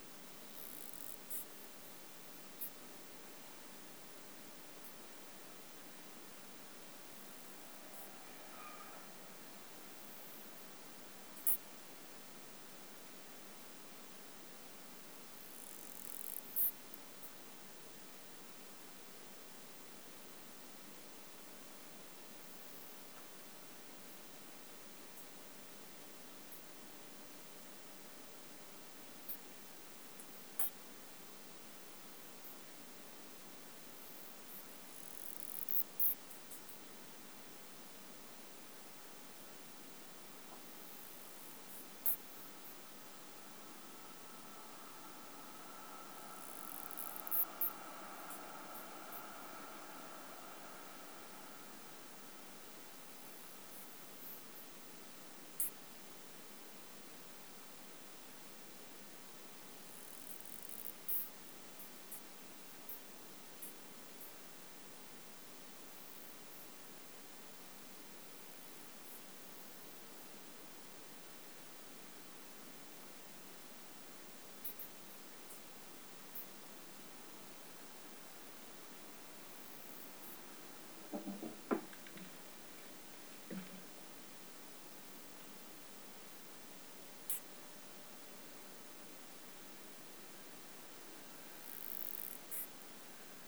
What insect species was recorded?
Isophya speciosa